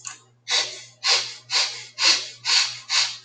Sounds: Sniff